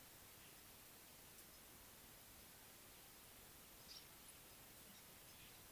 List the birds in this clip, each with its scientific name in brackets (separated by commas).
African Paradise-Flycatcher (Terpsiphone viridis)